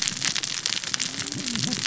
{"label": "biophony, cascading saw", "recorder": "SoundTrap 600 or HydroMoth"}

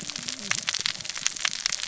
{"label": "biophony, cascading saw", "recorder": "SoundTrap 600 or HydroMoth"}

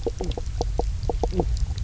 {"label": "biophony, knock croak", "recorder": "SoundTrap 300"}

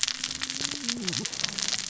{"label": "biophony, cascading saw", "recorder": "SoundTrap 600 or HydroMoth"}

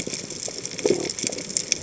{"label": "biophony", "recorder": "HydroMoth"}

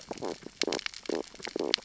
{"label": "biophony, stridulation", "recorder": "SoundTrap 600 or HydroMoth"}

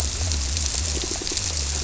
{"label": "biophony", "recorder": "SoundTrap 300"}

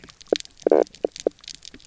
{"label": "biophony, knock croak", "recorder": "SoundTrap 300"}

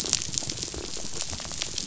{"label": "biophony, rattle", "recorder": "SoundTrap 500"}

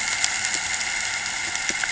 {"label": "anthrophony, boat engine", "recorder": "HydroMoth"}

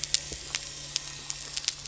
{"label": "anthrophony, boat engine", "recorder": "SoundTrap 300"}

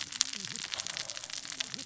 {"label": "biophony, cascading saw", "recorder": "SoundTrap 600 or HydroMoth"}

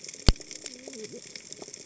{"label": "biophony, cascading saw", "recorder": "HydroMoth"}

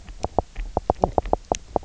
{"label": "biophony, knock croak", "recorder": "SoundTrap 300"}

